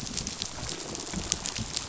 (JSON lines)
{"label": "biophony, rattle response", "recorder": "SoundTrap 500"}